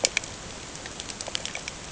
{"label": "ambient", "recorder": "HydroMoth"}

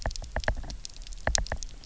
{"label": "biophony, knock", "recorder": "SoundTrap 300"}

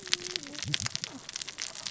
{"label": "biophony, cascading saw", "recorder": "SoundTrap 600 or HydroMoth"}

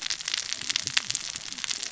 {"label": "biophony, cascading saw", "recorder": "SoundTrap 600 or HydroMoth"}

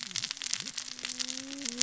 {"label": "biophony, cascading saw", "recorder": "SoundTrap 600 or HydroMoth"}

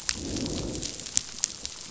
{"label": "biophony, growl", "recorder": "SoundTrap 500"}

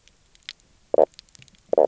{"label": "biophony, knock croak", "recorder": "SoundTrap 300"}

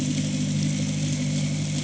{"label": "anthrophony, boat engine", "recorder": "HydroMoth"}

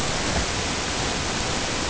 {"label": "ambient", "recorder": "HydroMoth"}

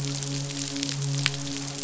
{"label": "biophony, midshipman", "recorder": "SoundTrap 500"}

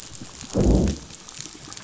{"label": "biophony, growl", "recorder": "SoundTrap 500"}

